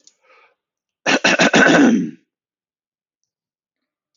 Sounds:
Throat clearing